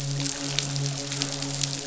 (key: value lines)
label: biophony, midshipman
recorder: SoundTrap 500